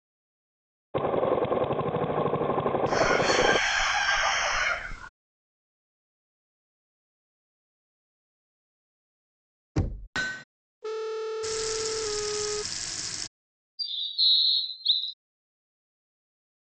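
At 0.94 seconds, you can hear a lawn mower. While that goes on, at 2.85 seconds, a chicken can be heard. After that, at 9.75 seconds, there is knocking. Next, at 10.12 seconds, the sound of a hammer is heard. Later, at 10.81 seconds, there is a telephone. Meanwhile, at 11.42 seconds, you can hear a water tap. Following that, at 13.78 seconds, a loud bird vocalization can be heard.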